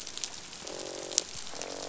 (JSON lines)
{"label": "biophony, croak", "recorder": "SoundTrap 500"}